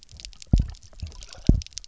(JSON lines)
{"label": "biophony, double pulse", "recorder": "SoundTrap 300"}